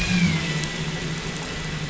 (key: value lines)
label: anthrophony, boat engine
recorder: SoundTrap 500